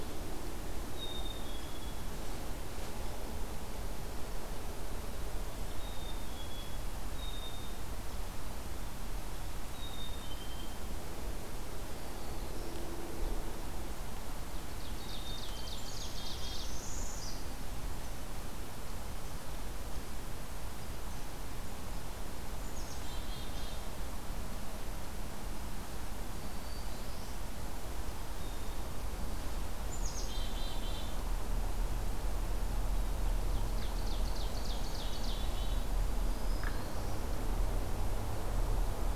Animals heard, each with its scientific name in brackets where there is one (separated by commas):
Black-throated Green Warbler (Setophaga virens), Black-capped Chickadee (Poecile atricapillus), Ovenbird (Seiurus aurocapilla), Northern Parula (Setophaga americana)